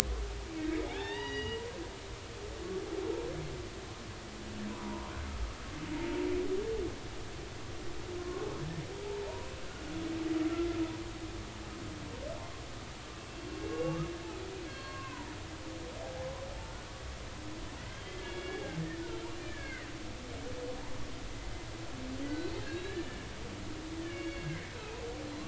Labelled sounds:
0.9	1.6	humpback whale, 0.80 to 4.9 kHz
4.7	5.1	humpback whale, 0.90 to 1.2 kHz
8.2	8.5	humpback whale, 1.0 to 1.2 kHz
9.0	9.5	humpback whale, 0.80 to 1.0 kHz
13.6	14.1	humpback whale, 1.1 to 2.8 kHz
14.7	15.3	humpback whale, 0.90 to 4.4 kHz
17.8	18.8	humpback whale, 1.5 to 3.4 kHz
19.4	19.9	humpback whale, 1.4 to 2.5 kHz
22.3	25.0	humpback whale, 0.83 to 4.5 kHz

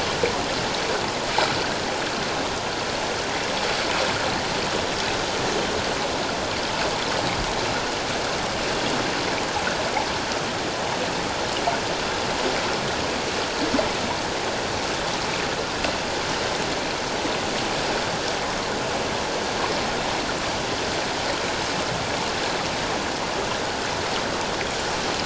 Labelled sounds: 1.6	1.8	water noise, 1.4 to 1.8 kHz

